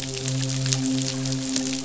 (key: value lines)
label: biophony, midshipman
recorder: SoundTrap 500